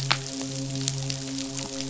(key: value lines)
label: biophony, midshipman
recorder: SoundTrap 500